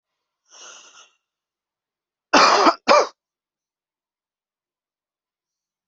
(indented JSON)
{
  "expert_labels": [
    {
      "quality": "good",
      "cough_type": "dry",
      "dyspnea": false,
      "wheezing": false,
      "stridor": false,
      "choking": false,
      "congestion": false,
      "nothing": true,
      "diagnosis": "upper respiratory tract infection",
      "severity": "mild"
    }
  ],
  "age": 32,
  "gender": "male",
  "respiratory_condition": true,
  "fever_muscle_pain": true,
  "status": "healthy"
}